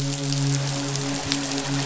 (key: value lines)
label: biophony, midshipman
recorder: SoundTrap 500